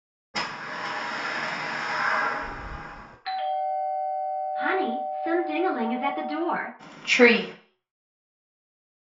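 First, a door opens. Then you can hear a ding-dong. After that, someone says "tree".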